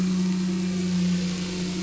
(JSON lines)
{"label": "anthrophony, boat engine", "recorder": "SoundTrap 500"}